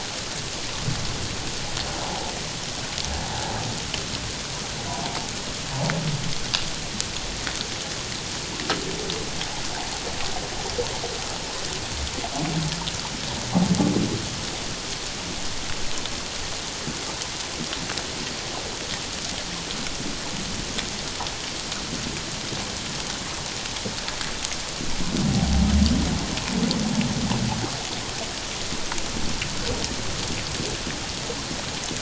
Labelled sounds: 2.1	2.3	humpback whale, 0.78 to 1.0 kHz

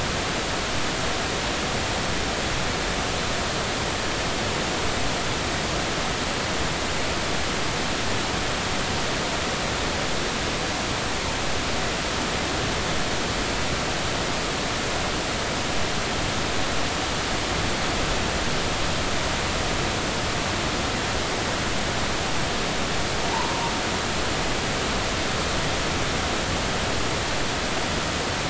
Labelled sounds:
23.3	23.7	humpback whale, 0.80 to 1.1 kHz

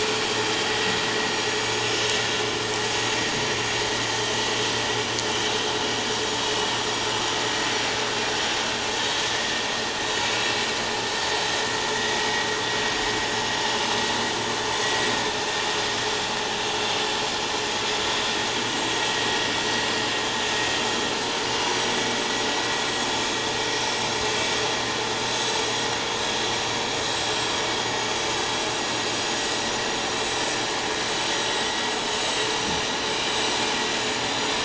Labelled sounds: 14.7	15.1	vessel noise, 1.9 to 7.8 kHz
17.0	17.3	vessel noise, 7.3 to 7.4 kHz
19.0	19.3	vessel noise, 7.5 to 7.7 kHz
21.2	22.0	vessel noise, 5.7 to 7.9 kHz
25.3	25.7	vessel noise, 7.6 to 7.8 kHz
33.2	33.5	vessel noise, 7.7 to 7.9 kHz
33.9	34.3	vessel noise, 6.8 to 7.0 kHz

